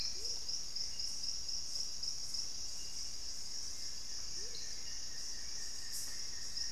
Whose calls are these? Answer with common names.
Amazonian Motmot, Hauxwell's Thrush, Buff-throated Woodcreeper